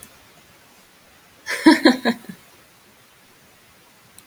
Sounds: Laughter